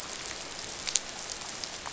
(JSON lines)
{"label": "biophony, dolphin", "recorder": "SoundTrap 500"}